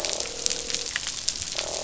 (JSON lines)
{"label": "biophony, croak", "recorder": "SoundTrap 500"}